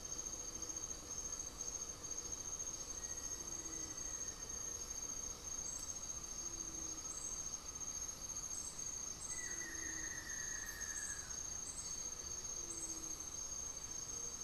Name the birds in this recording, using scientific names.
Leptotila rufaxilla, Formicarius analis, Xiphorhynchus guttatus